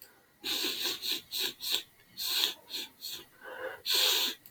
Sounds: Sniff